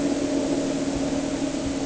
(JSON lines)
{"label": "anthrophony, boat engine", "recorder": "HydroMoth"}